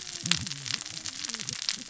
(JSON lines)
{"label": "biophony, cascading saw", "recorder": "SoundTrap 600 or HydroMoth"}